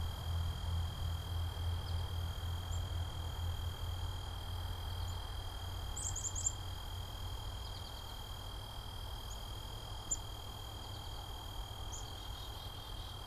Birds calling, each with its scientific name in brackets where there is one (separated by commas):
Black-capped Chickadee (Poecile atricapillus), American Goldfinch (Spinus tristis)